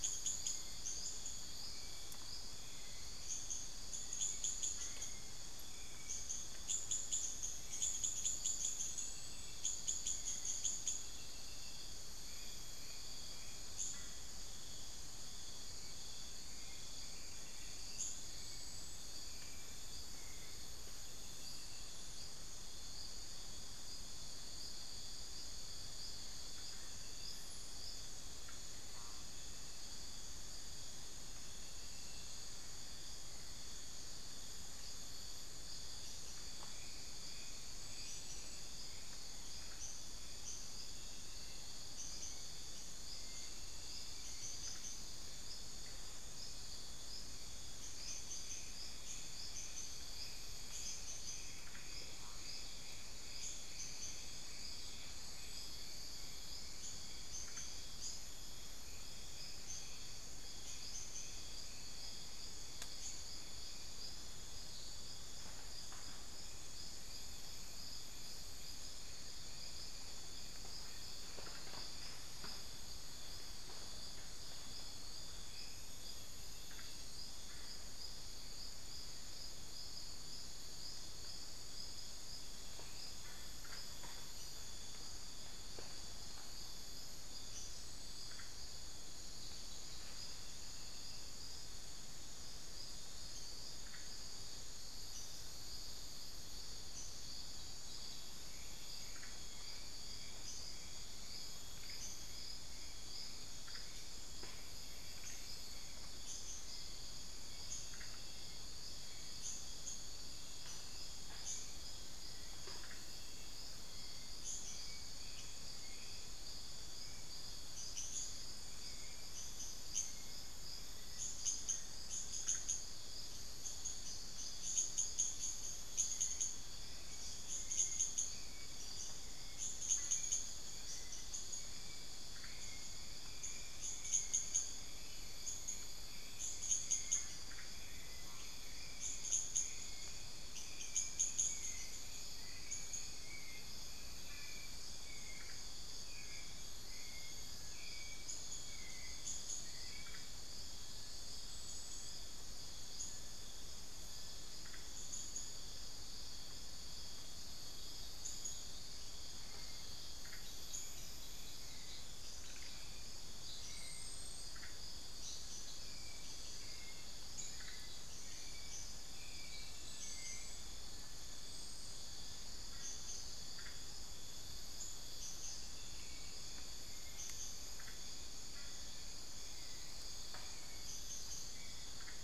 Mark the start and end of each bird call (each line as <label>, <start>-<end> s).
Hauxwell's Thrush (Turdus hauxwelli), 0.0-21.0 s
unidentified bird, 0.0-182.2 s
Hauxwell's Thrush (Turdus hauxwelli), 43.0-44.6 s
Hauxwell's Thrush (Turdus hauxwelli), 106.2-121.4 s
Amazonian Pygmy-Owl (Glaucidium hardyi), 125.0-127.9 s
Hauxwell's Thrush (Turdus hauxwelli), 125.9-150.4 s
Cinereous Tinamou (Crypturellus cinereus), 133.9-141.4 s
Little Tinamou (Crypturellus soui), 143.6-157.0 s
Hauxwell's Thrush (Turdus hauxwelli), 159.1-171.0 s
Hauxwell's Thrush (Turdus hauxwelli), 175.9-182.2 s